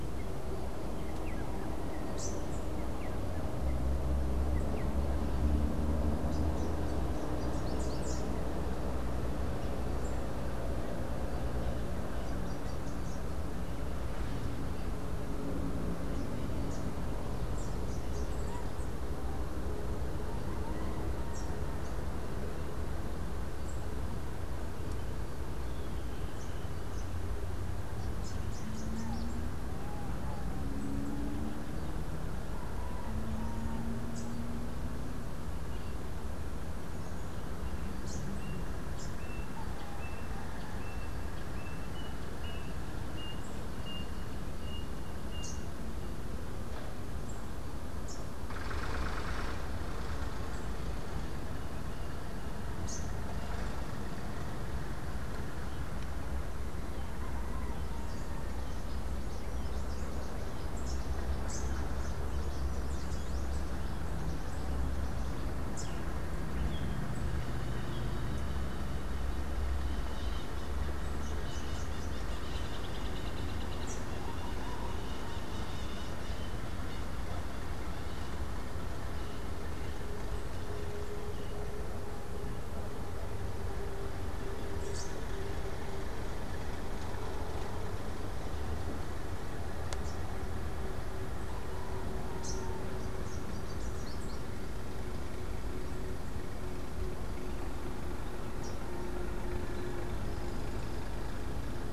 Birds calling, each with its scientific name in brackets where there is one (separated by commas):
Great Kiskadee (Pitangus sulphuratus), Rufous-capped Warbler (Basileuterus rufifrons), Melodious Blackbird (Dives dives)